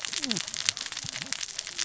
{"label": "biophony, cascading saw", "recorder": "SoundTrap 600 or HydroMoth"}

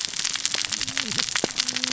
{"label": "biophony, cascading saw", "recorder": "SoundTrap 600 or HydroMoth"}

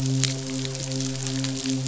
{"label": "biophony, midshipman", "recorder": "SoundTrap 500"}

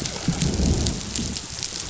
{"label": "biophony, growl", "recorder": "SoundTrap 500"}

